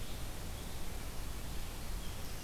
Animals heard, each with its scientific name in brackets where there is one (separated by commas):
Red-eyed Vireo (Vireo olivaceus)